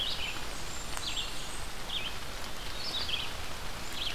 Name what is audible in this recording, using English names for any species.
Red-eyed Vireo, Blackburnian Warbler